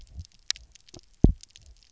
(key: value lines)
label: biophony, double pulse
recorder: SoundTrap 300